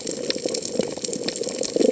{"label": "biophony", "recorder": "HydroMoth"}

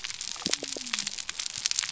{"label": "biophony", "recorder": "SoundTrap 300"}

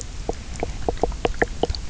{"label": "biophony, knock croak", "recorder": "SoundTrap 300"}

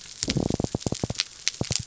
{"label": "biophony", "recorder": "SoundTrap 300"}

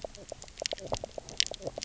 {"label": "biophony, knock croak", "recorder": "SoundTrap 300"}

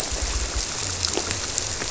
{"label": "biophony", "recorder": "SoundTrap 300"}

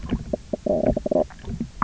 {"label": "biophony, knock croak", "recorder": "SoundTrap 300"}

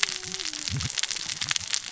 {"label": "biophony, cascading saw", "recorder": "SoundTrap 600 or HydroMoth"}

